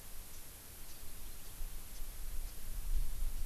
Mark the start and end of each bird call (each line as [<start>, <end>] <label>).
[0.80, 1.10] Japanese Bush Warbler (Horornis diphone)
[1.80, 2.10] Japanese Bush Warbler (Horornis diphone)